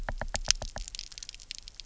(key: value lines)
label: biophony, knock
recorder: SoundTrap 300